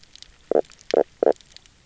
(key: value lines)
label: biophony, knock croak
recorder: SoundTrap 300